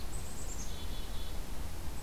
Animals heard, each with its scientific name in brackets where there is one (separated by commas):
Black-capped Chickadee (Poecile atricapillus)